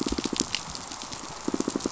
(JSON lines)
{"label": "biophony, pulse", "recorder": "SoundTrap 500"}